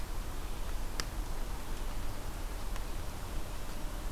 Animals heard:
forest ambience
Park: Marsh-Billings-Rockefeller National Historical Park